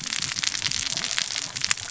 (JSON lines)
{"label": "biophony, cascading saw", "recorder": "SoundTrap 600 or HydroMoth"}